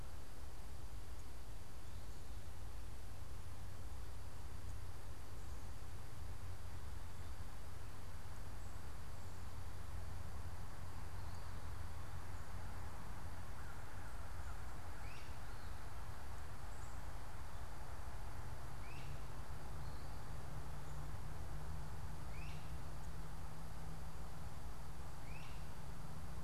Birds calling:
Great Crested Flycatcher (Myiarchus crinitus)

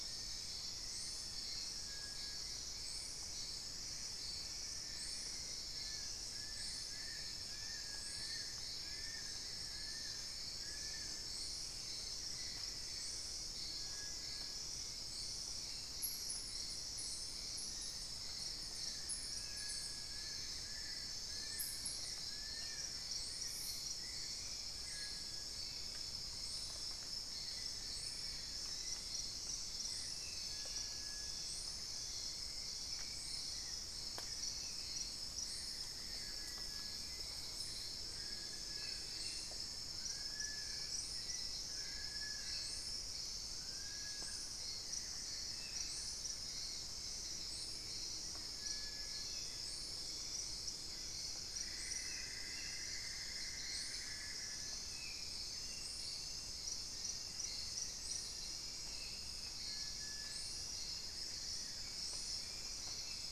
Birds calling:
Cinnamon-throated Woodcreeper (Dendrexetastes rufigula), Plain-winged Antshrike (Thamnophilus schistaceus), Cinereous Tinamou (Crypturellus cinereus), Black-faced Antthrush (Formicarius analis), Amazonian Barred-Woodcreeper (Dendrocolaptes certhia), Long-billed Woodcreeper (Nasica longirostris), unidentified bird

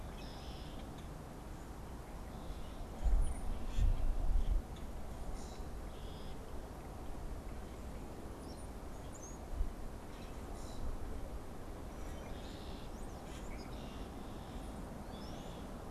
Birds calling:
unidentified bird, Brown-headed Cowbird (Molothrus ater), Common Grackle (Quiscalus quiscula), Red-winged Blackbird (Agelaius phoeniceus)

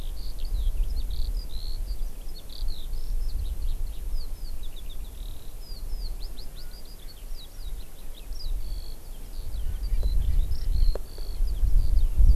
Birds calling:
Eurasian Skylark (Alauda arvensis)

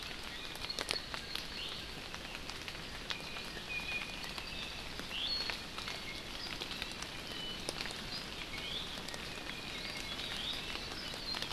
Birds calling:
Apapane (Himatione sanguinea), Iiwi (Drepanis coccinea)

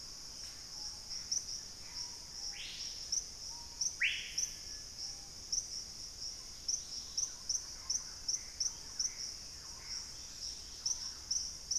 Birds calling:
Thrush-like Wren (Campylorhynchus turdinus), Dusky-capped Greenlet (Pachysylvia hypoxantha), Gray Antbird (Cercomacra cinerascens), Screaming Piha (Lipaugus vociferans)

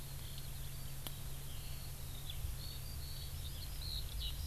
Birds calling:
Hawaii Amakihi (Chlorodrepanis virens), Eurasian Skylark (Alauda arvensis)

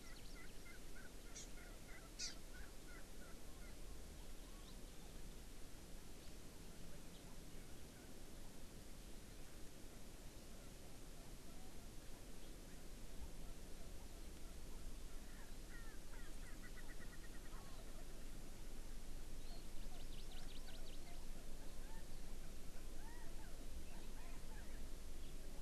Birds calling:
Hawaii Amakihi (Chlorodrepanis virens), Chinese Hwamei (Garrulax canorus), Erckel's Francolin (Pternistis erckelii)

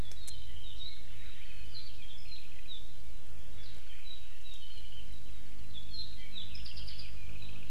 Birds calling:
Warbling White-eye (Zosterops japonicus), Apapane (Himatione sanguinea)

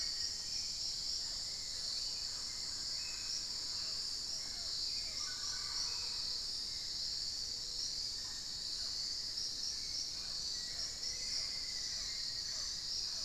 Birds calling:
Mealy Parrot (Amazona farinosa), Dusky-throated Antshrike (Thamnomanes ardesiacus), Black-faced Antthrush (Formicarius analis), Hauxwell's Thrush (Turdus hauxwelli)

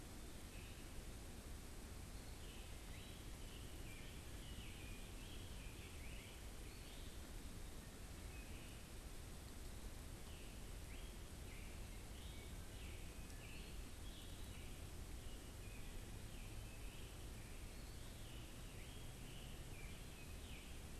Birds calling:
Wood Thrush (Hylocichla mustelina), Scarlet Tanager (Piranga olivacea)

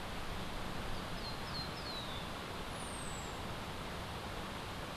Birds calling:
Cabanis's Ground-Sparrow (Melozone cabanisi), White-eared Ground-Sparrow (Melozone leucotis)

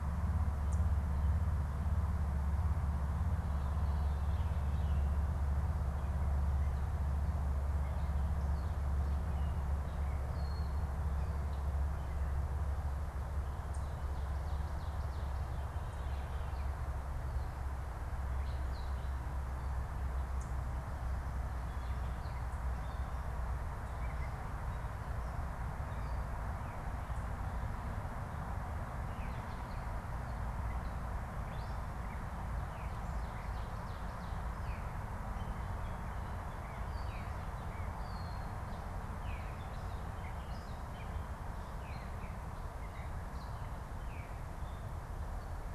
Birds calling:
Gray Catbird (Dumetella carolinensis), Veery (Catharus fuscescens), unidentified bird

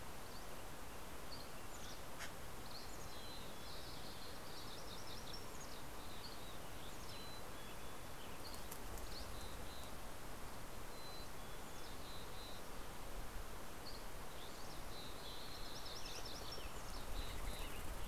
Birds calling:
Dusky Flycatcher (Empidonax oberholseri), Mountain Chickadee (Poecile gambeli), Common Raven (Corvus corax), Western Tanager (Piranga ludoviciana), MacGillivray's Warbler (Geothlypis tolmiei)

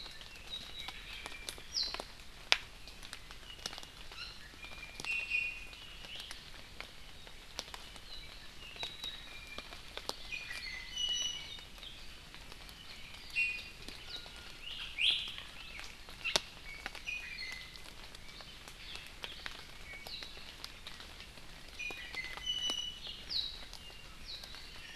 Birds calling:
Iiwi (Drepanis coccinea), Warbling White-eye (Zosterops japonicus)

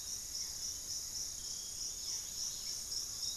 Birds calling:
Barred Forest-Falcon (Micrastur ruficollis), Dusky-capped Greenlet (Pachysylvia hypoxantha), Piratic Flycatcher (Legatus leucophaius)

